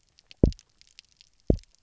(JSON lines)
{"label": "biophony, double pulse", "recorder": "SoundTrap 300"}